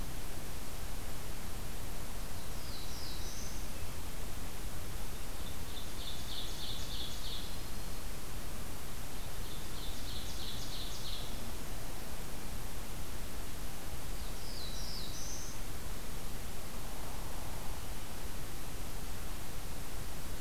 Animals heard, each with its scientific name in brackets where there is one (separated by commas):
Black-throated Blue Warbler (Setophaga caerulescens), Yellow-rumped Warbler (Setophaga coronata), Hairy Woodpecker (Dryobates villosus), Ovenbird (Seiurus aurocapilla)